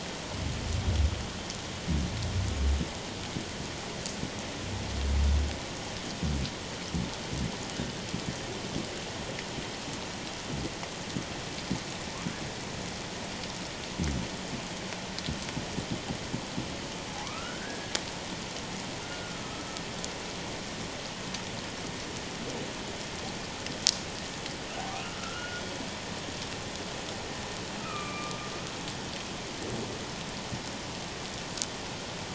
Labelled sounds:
17.1	18.0	humpback whale, 0.78 to 1.7 kHz
19.1	19.4	humpback whale, 1.4 to 1.5 kHz
24.9	25.6	humpback whale, 1.1 to 1.5 kHz
27.8	28.4	humpback whale, 1.1 to 2.7 kHz

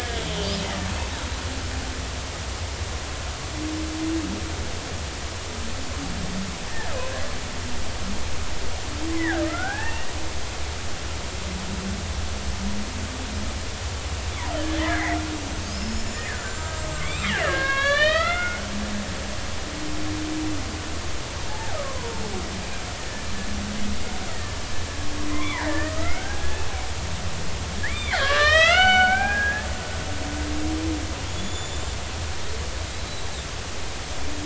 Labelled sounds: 9.1	10.1	killer whale, Bigg's (transient), 0.80 to 2.9 kHz
14.5	18.7	killer whale, Bigg's (transient), 1.0 to 8.0 kHz
21.5	22.2	killer whale, Bigg's (transient), 0.80 to 1.3 kHz
24.3	24.5	killer whale, Bigg's (transient), 1.7 to 2.1 kHz
25.3	26.6	killer whale, Bigg's (transient), 0.86 to 2.5 kHz
27.8	29.7	killer whale, Bigg's (transient), 0.80 to 6.4 kHz
31.2	32.0	killer whale, Bigg's (transient), 3.1 to 7.3 kHz
32.9	33.3	killer whale, Bigg's (transient), 3.8 to 4.1 kHz

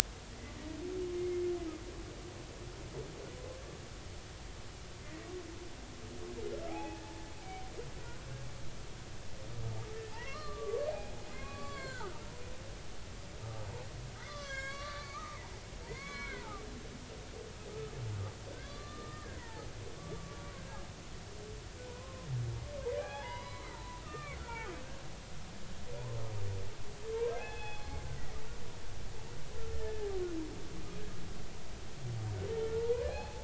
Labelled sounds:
1.2	1.4	humpback whale, 2.1 to 2.2 kHz
6.7	7.0	humpback whale, 0.80 to 2.6 kHz
10.1	12.2	humpback whale, 0.80 to 4.6 kHz
14.2	15.6	humpback whale, 0.80 to 7.7 kHz
15.9	16.6	humpback whale, 0.80 to 4.3 kHz
18.6	19.7	humpback whale, 0.80 to 4.4 kHz
20.0	20.8	humpback whale, 1.1 to 1.7 kHz
21.8	24.7	humpback whale, 0.80 to 4.0 kHz
27.2	27.9	humpback whale, 0.80 to 3.5 kHz
29.7	30.1	humpback whale, 1.7 to 1.8 kHz
32.8	33.4	humpback whale, 0.80 to 4.4 kHz

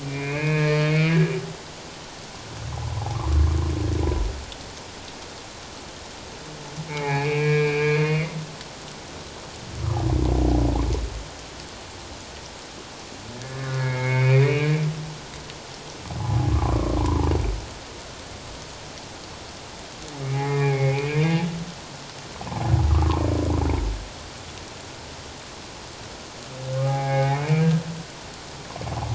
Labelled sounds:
0.0	1.3	humpback whale, 1.6 to 2.7 kHz
3.1	3.4	humpback whale, 0.81 to 1.2 kHz
6.9	8.3	humpback whale, 0.78 to 2.8 kHz
13.3	14.8	humpback whale, 1.6 to 2.6 kHz
16.2	17.3	humpback whale, 0.78 to 1.2 kHz
20.3	21.4	humpback whale, 0.78 to 2.6 kHz
22.5	22.7	humpback whale, 0.78 to 1.1 kHz
26.8	27.7	humpback whale, 0.78 to 2.6 kHz

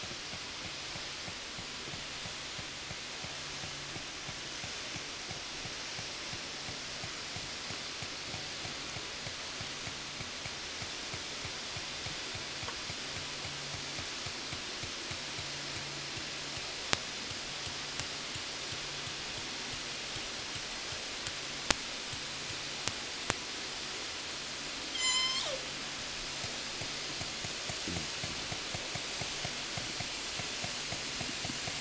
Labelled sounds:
0.0	23.6	killer whale, 0 to 8.0 kHz
24.7	25.9	killer whale, southern resident, 0 to 8.0 kHz
26.3	31.7	killer whale, 7.5 to 8.0 kHz

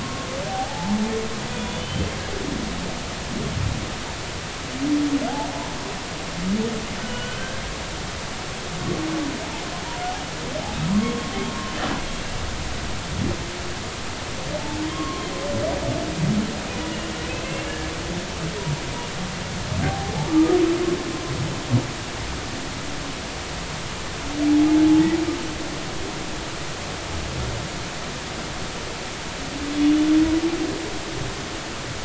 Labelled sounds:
0.0	0.9	humpback whale, 0.80 to 1.1 kHz
1.6	2.1	humpback whale, 3.0 to 3.6 kHz
5.3	5.6	humpback whale, 0.80 to 0.96 kHz
7.0	7.6	humpback whale, 1.4 to 3.2 kHz
10.9	11.3	humpback whale, 0.93 to 1.2 kHz
14.9	15.3	humpback whale, 1.0 to 1.2 kHz
17.7	17.9	humpback whale, 1.6 to 1.8 kHz
19.8	20.6	humpback whale, 0.80 to 1.3 kHz

